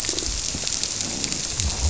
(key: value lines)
label: biophony
recorder: SoundTrap 300